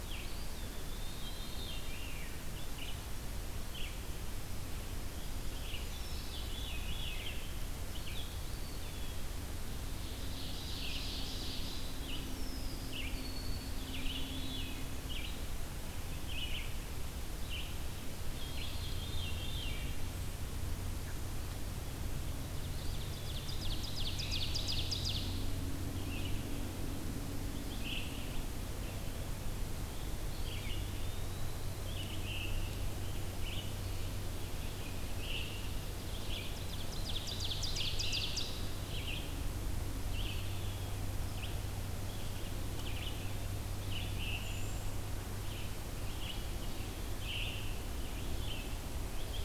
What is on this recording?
Eastern Wood-Pewee, Red-eyed Vireo, Veery, Ovenbird, Wood Thrush